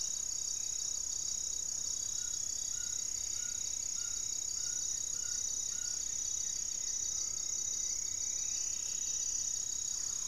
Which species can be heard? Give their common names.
Amazonian Trogon, Black-faced Antthrush, Striped Woodcreeper, Buff-breasted Wren, Goeldi's Antbird, Thrush-like Wren